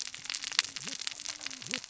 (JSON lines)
{"label": "biophony, cascading saw", "recorder": "SoundTrap 600 or HydroMoth"}